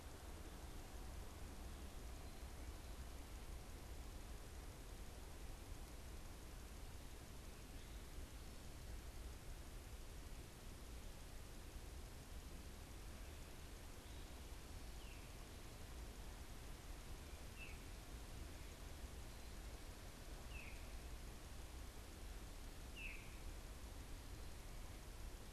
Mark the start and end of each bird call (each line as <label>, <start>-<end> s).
Veery (Catharus fuscescens), 14.7-25.5 s